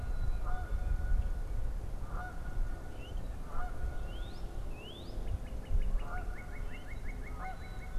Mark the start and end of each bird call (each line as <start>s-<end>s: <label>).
0.0s-8.0s: Canada Goose (Branta canadensis)
0.0s-1.1s: Black-capped Chickadee (Poecile atricapillus)
3.9s-8.0s: Northern Cardinal (Cardinalis cardinalis)
7.3s-8.0s: Black-capped Chickadee (Poecile atricapillus)